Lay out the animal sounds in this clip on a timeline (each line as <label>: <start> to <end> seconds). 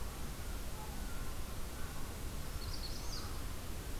American Herring Gull (Larus smithsonianus): 0.0 to 4.0 seconds
Magnolia Warbler (Setophaga magnolia): 2.5 to 3.4 seconds